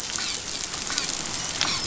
{"label": "biophony, dolphin", "recorder": "SoundTrap 500"}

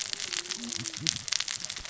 {"label": "biophony, cascading saw", "recorder": "SoundTrap 600 or HydroMoth"}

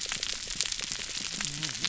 {"label": "biophony, whup", "recorder": "SoundTrap 300"}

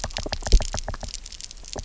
{"label": "biophony, knock", "recorder": "SoundTrap 300"}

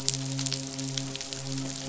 {"label": "biophony, midshipman", "recorder": "SoundTrap 500"}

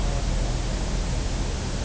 {"label": "biophony", "recorder": "SoundTrap 300"}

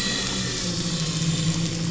{"label": "anthrophony, boat engine", "recorder": "SoundTrap 500"}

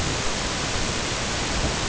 {"label": "ambient", "recorder": "HydroMoth"}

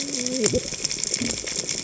{"label": "biophony, cascading saw", "recorder": "HydroMoth"}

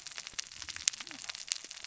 {"label": "biophony, cascading saw", "recorder": "SoundTrap 600 or HydroMoth"}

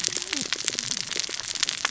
{"label": "biophony, cascading saw", "recorder": "SoundTrap 600 or HydroMoth"}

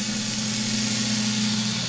{"label": "anthrophony, boat engine", "recorder": "SoundTrap 500"}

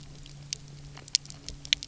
{"label": "anthrophony, boat engine", "recorder": "SoundTrap 300"}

